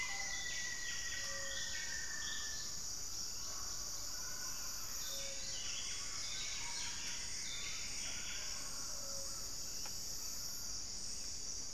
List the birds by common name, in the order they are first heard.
Russet-backed Oropendola, Rufous-fronted Antthrush, Gray-fronted Dove, Buff-breasted Wren, Plumbeous Antbird